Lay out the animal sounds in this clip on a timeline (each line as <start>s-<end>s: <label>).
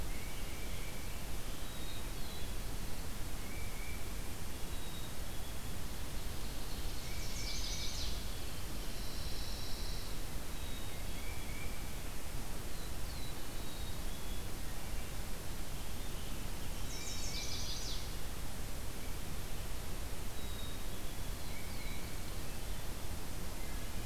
0.0s-1.5s: Tufted Titmouse (Baeolophus bicolor)
1.4s-2.6s: Black-capped Chickadee (Poecile atricapillus)
2.1s-3.2s: Black-throated Blue Warbler (Setophaga caerulescens)
3.1s-4.2s: Tufted Titmouse (Baeolophus bicolor)
4.6s-5.9s: Black-capped Chickadee (Poecile atricapillus)
6.9s-8.3s: Chestnut-sided Warbler (Setophaga pensylvanica)
7.0s-8.0s: Tufted Titmouse (Baeolophus bicolor)
8.3s-10.2s: Pine Warbler (Setophaga pinus)
10.5s-11.4s: Black-capped Chickadee (Poecile atricapillus)
10.7s-12.2s: Tufted Titmouse (Baeolophus bicolor)
12.4s-13.9s: Black-throated Blue Warbler (Setophaga caerulescens)
13.3s-14.4s: Black-capped Chickadee (Poecile atricapillus)
16.5s-18.1s: Chestnut-sided Warbler (Setophaga pensylvanica)
16.7s-17.8s: Black-capped Chickadee (Poecile atricapillus)
16.8s-18.0s: Tufted Titmouse (Baeolophus bicolor)
20.1s-21.6s: Black-capped Chickadee (Poecile atricapillus)
21.3s-22.5s: Black-throated Blue Warbler (Setophaga caerulescens)
21.4s-22.3s: Tufted Titmouse (Baeolophus bicolor)